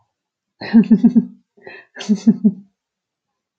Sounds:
Laughter